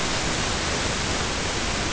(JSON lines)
{"label": "ambient", "recorder": "HydroMoth"}